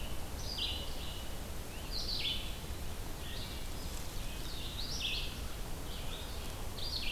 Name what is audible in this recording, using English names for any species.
Red-eyed Vireo